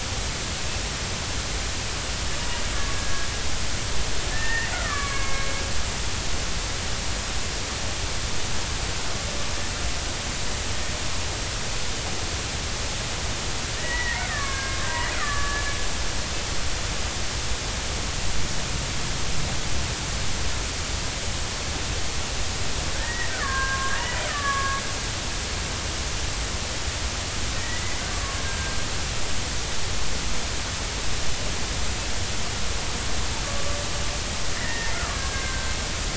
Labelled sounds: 2.9	3.3	killer whale, Bigg's (transient), 1.6 to 1.7 kHz
4.3	5.5	killer whale, Bigg's (transient), 1.0 to 2.5 kHz
13.8	15.6	killer whale, Bigg's (transient), 1.0 to 2.3 kHz
23.0	24.8	killer whale, Bigg's (transient), 0.99 to 2.0 kHz
27.6	27.8	killer whale, Bigg's (transient), 1.8 to 2.0 kHz
28.4	28.8	killer whale, Bigg's (transient), 1.5 to 1.7 kHz
34.5	35.8	killer whale, Bigg's (transient), 1.0 to 2.2 kHz

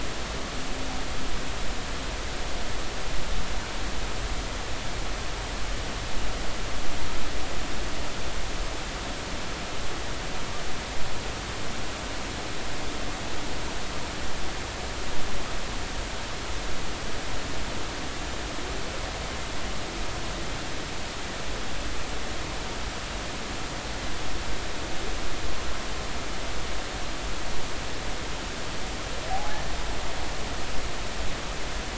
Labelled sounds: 29.3	29.6	humpback whale, 0.80 to 0.90 kHz

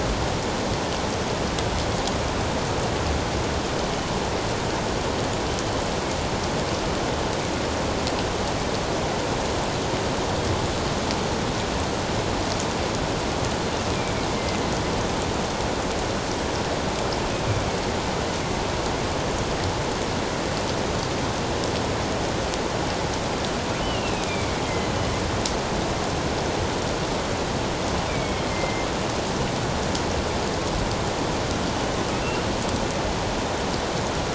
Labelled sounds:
23.8	24.6	killer whale, northern resident, A clan, AA subclan, A04 pod, 2.1 to 3.1 kHz
28.1	28.9	killer whale, northern resident, A clan, AA subclan, A04 pod, 2.0 to 2.4 kHz

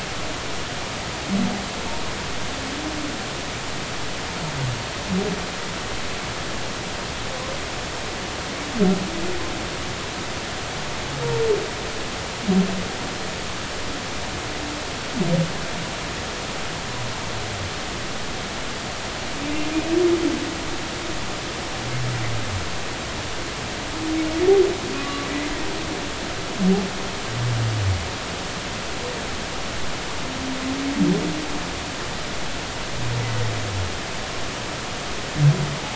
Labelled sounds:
24.9	25.3	humpback whale, 1.1 to 1.2 kHz

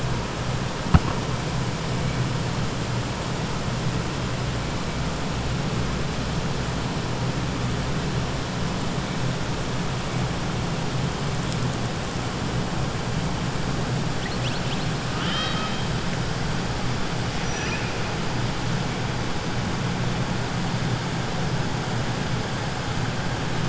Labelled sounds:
15.1	15.8	killer whale, 1.2 to 5.7 kHz

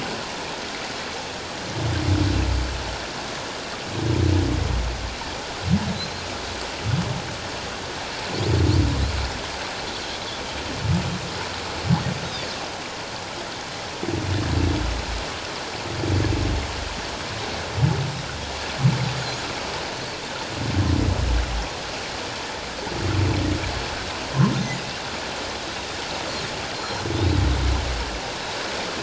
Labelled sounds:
26.8	27.4	Pacific white-sided dolphin, 3.3 to 4.2 kHz

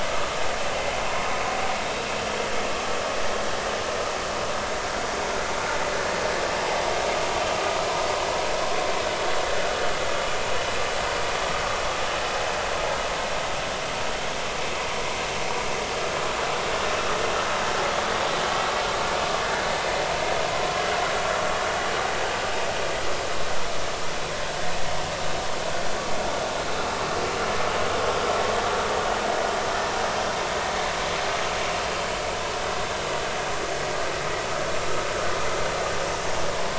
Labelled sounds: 1.1	1.4	vessel noise, 0.93 to 1.1 kHz

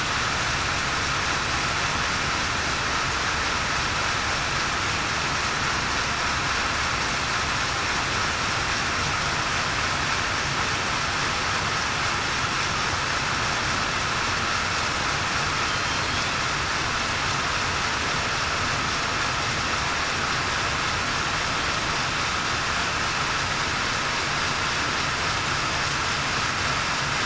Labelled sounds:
15.6	16.0	killer whale, southern resident, 3.1 to 3.2 kHz

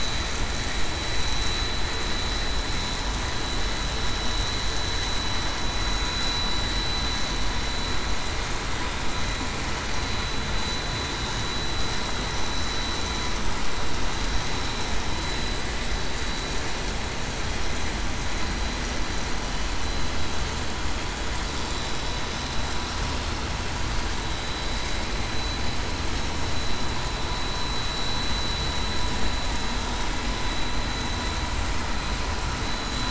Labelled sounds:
24.4	24.8	vessel noise, 3.9 to 4.0 kHz
27.8	28.1	vessel noise, 3.91 to 3.94 kHz

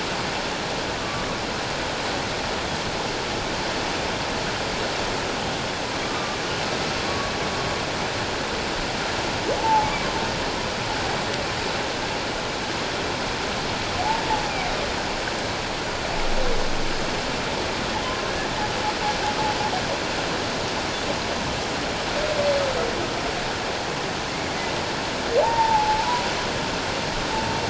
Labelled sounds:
1.0	1.3	humpback whale, 1.1 to 1.2 kHz
6.0	6.4	humpback whale, 1.1 to 1.3 kHz
7.1	7.3	humpback whale, 1.1 to 1.2 kHz
9.6	9.9	humpback whale, 0.81 to 0.94 kHz
18.0	18.3	humpback whale, 0.97 to 1.1 kHz
25.4	26.2	humpback whale, 0.78 to 1.0 kHz

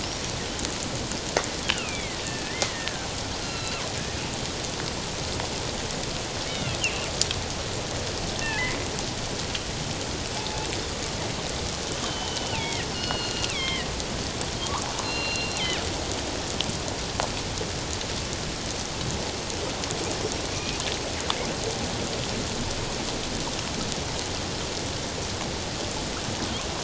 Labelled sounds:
1.6	3.1	killer whale, northern resident, G clan, 1.5 to 3.4 kHz
3.4	3.9	killer whale, northern resident, G clan, 1.0 to 4.3 kHz
6.5	7.1	killer whale, northern resident, G clan, 2.0 to 3.8 kHz
8.4	8.8	killer whale, northern resident, G clan, 0.81 to 2.3 kHz
10.4	10.7	killer whale, northern resident, G clan, 0.81 to 0.97 kHz
12.1	13.9	killer whale, northern resident, G clan, 0.84 to 5.3 kHz
15.0	15.5	killer whale, northern resident, G clan, 2.7 to 4.3 kHz
20.5	20.8	killer whale, northern resident, G clan, 2.3 to 2.5 kHz

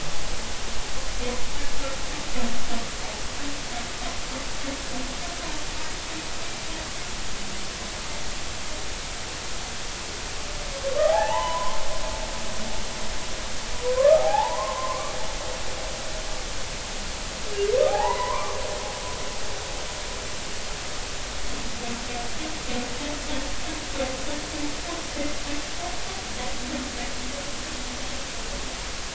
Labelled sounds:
11.1	11.8	humpback whale, 0.80 to 3.1 kHz
14.0	15.1	humpback whale, 0.80 to 1.3 kHz
17.9	18.6	humpback whale, 0.80 to 2.4 kHz

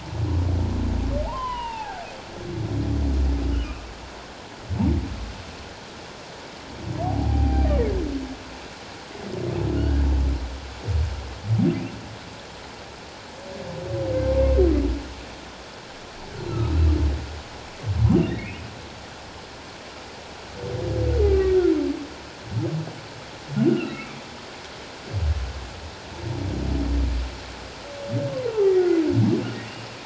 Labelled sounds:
1.2	2.1	humpback whale, 0.78 to 3.2 kHz
7.0	7.7	humpback whale, 0.78 to 4.8 kHz
9.8	10.1	humpback whale, 1.4 to 1.7 kHz
18.3	18.7	humpback whale, 1.8 to 2.9 kHz
21.2	21.6	humpback whale, 1.8 to 2.1 kHz
23.7	24.1	humpback whale, 1.2 to 2.9 kHz
28.5	28.7	humpback whale, 0.78 to 1.0 kHz

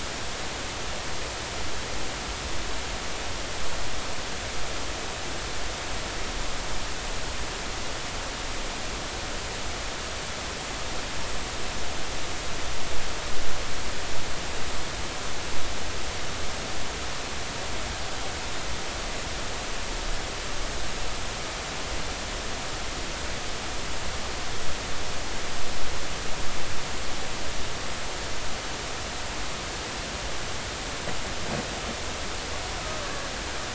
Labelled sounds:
33.0	33.3	killer whale, Bigg's (transient), 1.6 to 1.8 kHz

